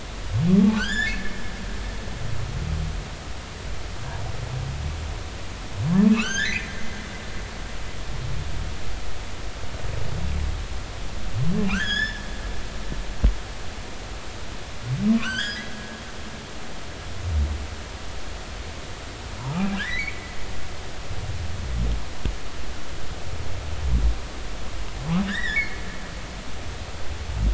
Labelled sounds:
0.7	1.3	humpback whale, 1.3 to 7.2 kHz
6.1	7.0	humpback whale, 0.99 to 6.6 kHz
11.7	12.2	humpback whale, 1.1 to 7.0 kHz
15.2	15.7	humpback whale, 1.3 to 6.2 kHz
19.7	20.2	humpback whale, 1.5 to 2.4 kHz
25.2	25.8	humpback whale, 1.5 to 3.9 kHz

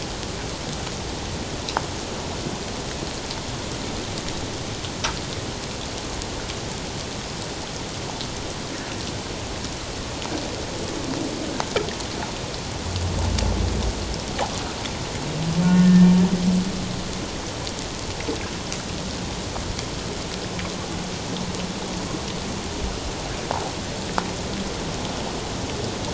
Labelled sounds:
15.6	16.1	humpback whale, 1.4 to 1.9 kHz

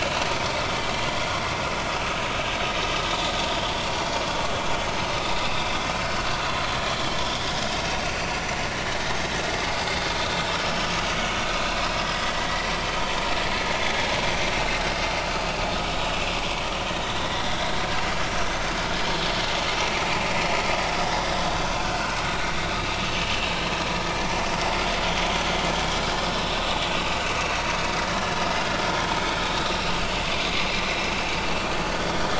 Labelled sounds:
8.3	8.6	vessel noise, 5.8 to 6.1 kHz
12.4	12.7	vessel noise, 1.9 to 2.1 kHz
16.9	17.6	vessel noise, 1.8 to 4.0 kHz
18.4	18.7	vessel noise, 6.0 to 6.4 kHz
21.8	22.2	vessel noise, 1.4 to 1.6 kHz
23.0	23.6	vessel noise, 2.6 to 6.2 kHz
24.7	25.0	vessel noise, 4.7 to 4.9 kHz
28.0	28.4	vessel noise, 1.6 to 1.8 kHz

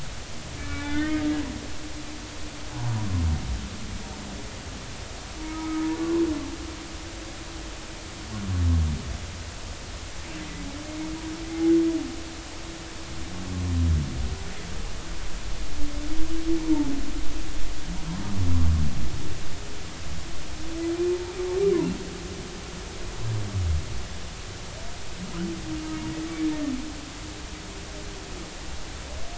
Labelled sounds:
0.6	1.2	humpback whale, 1.4 to 3.7 kHz
5.5	6.2	humpback whale, 0.99 to 1.3 kHz
21.1	21.4	humpback whale, 0.83 to 0.99 kHz

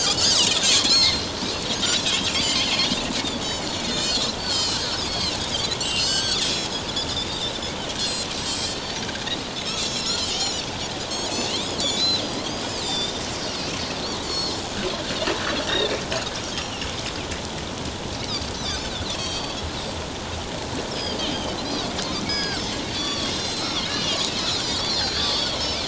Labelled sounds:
2.3	2.9	Pacific white-sided dolphin, 2.0 to 5.3 kHz
3.3	5.4	Pacific white-sided dolphin, 2.6 to 7.7 kHz
5.8	7.5	Pacific white-sided dolphin, 1.4 to 7.9 kHz
8.0	9.0	Pacific white-sided dolphin, 3.1 to 7.9 kHz
9.6	10.6	Pacific white-sided dolphin, 2.6 to 7.6 kHz
12.0	13.7	Pacific white-sided dolphin, 3.5 to 7.5 kHz
14.2	14.6	Pacific white-sided dolphin, 4.0 to 7.2 kHz
15.7	15.9	Pacific white-sided dolphin, 1.5 to 3.8 kHz
16.6	16.9	Pacific white-sided dolphin, 5.2 to 5.7 kHz
19.1	19.6	Pacific white-sided dolphin, 3.1 to 7.8 kHz
20.9	21.9	Pacific white-sided dolphin, 3.7 to 5.6 kHz
22.3	22.6	Pacific white-sided dolphin, 1.4 to 6.7 kHz
22.9	25.8	Pacific white-sided dolphin, 1.0 to 7.3 kHz

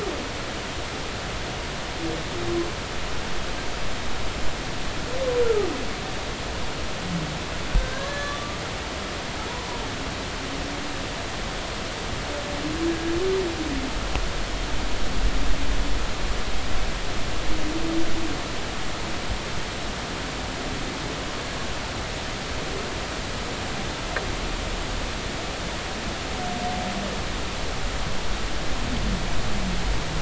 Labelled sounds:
5.4	5.7	humpback whale, 1.1 to 1.4 kHz
7.8	8.6	humpback whale, 1.0 to 4.1 kHz
12.9	13.1	humpback whale, 1.6 to 1.7 kHz

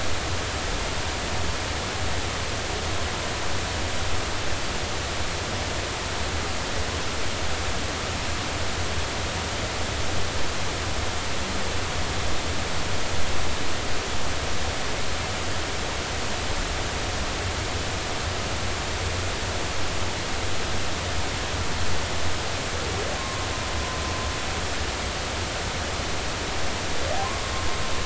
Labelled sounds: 23.2	23.5	humpback whale, 1.0 to 1.1 kHz

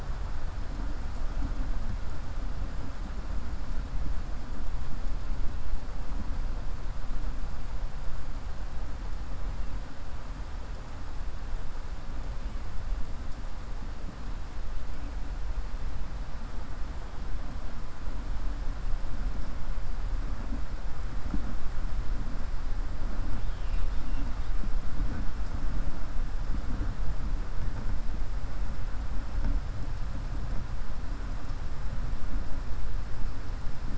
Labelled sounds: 23.4	24.3	killer whale, 2.4 to 4.6 kHz

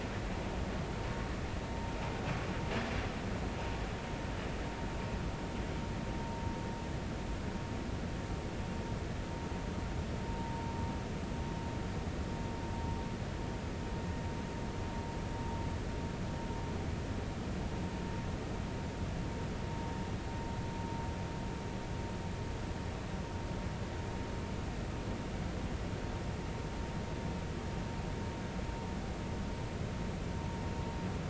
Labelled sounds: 10.3	10.5	vessel noise, 0.86 to 0.96 kHz

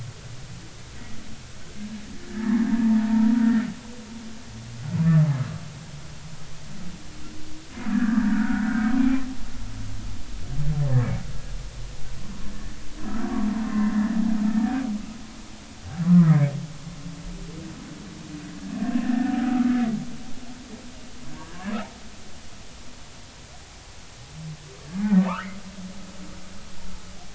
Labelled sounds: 2.3	3.6	humpback whale, 0.86 to 1.9 kHz
7.9	9.2	humpback whale, 1.2 to 2.4 kHz
14.6	14.9	humpback whale, 0.93 to 1.1 kHz
16.0	16.3	humpback whale, 0.96 to 1.3 kHz
19.0	19.7	humpback whale, 1.2 to 1.9 kHz
24.8	25.5	humpback whale, 0.83 to 1.8 kHz

